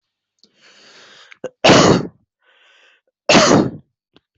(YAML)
expert_labels:
- quality: good
  cough_type: dry
  dyspnea: false
  wheezing: false
  stridor: false
  choking: false
  congestion: false
  nothing: true
  diagnosis: COVID-19
  severity: mild